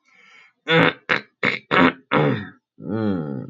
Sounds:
Throat clearing